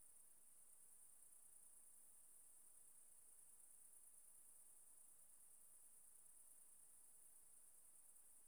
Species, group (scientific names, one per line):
Phaneroptera nana
Orthoptera